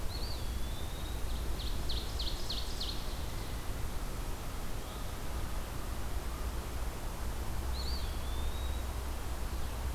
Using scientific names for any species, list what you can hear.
Contopus virens, Seiurus aurocapilla